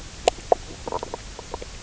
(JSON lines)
{"label": "biophony, knock croak", "recorder": "SoundTrap 300"}